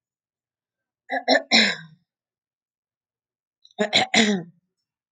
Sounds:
Throat clearing